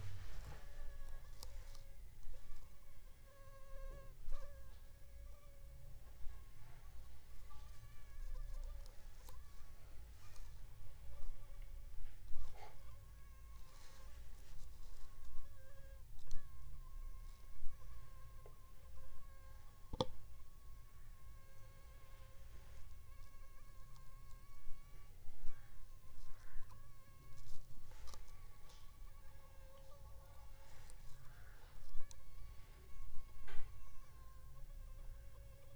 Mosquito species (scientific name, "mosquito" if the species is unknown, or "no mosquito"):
Anopheles funestus s.l.